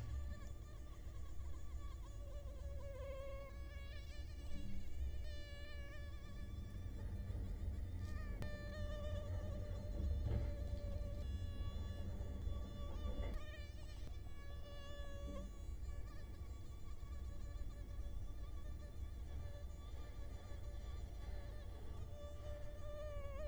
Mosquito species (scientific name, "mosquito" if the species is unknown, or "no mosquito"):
Culex quinquefasciatus